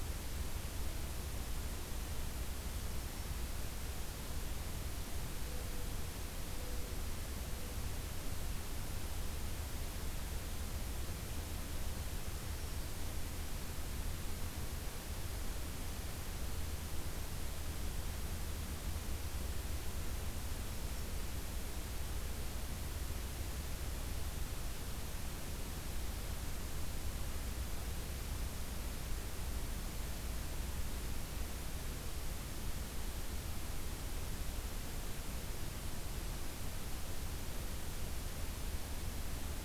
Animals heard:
forest ambience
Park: Acadia National Park